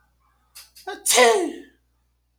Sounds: Sniff